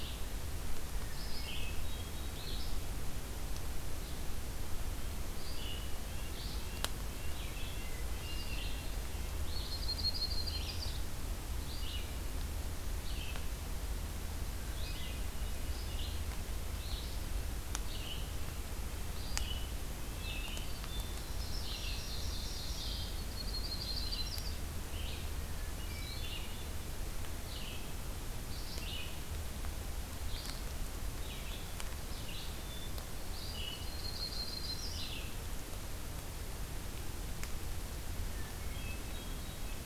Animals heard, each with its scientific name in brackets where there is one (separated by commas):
Red-eyed Vireo (Vireo olivaceus), Hermit Thrush (Catharus guttatus), Ovenbird (Seiurus aurocapilla), Red-breasted Nuthatch (Sitta canadensis), Yellow-rumped Warbler (Setophaga coronata)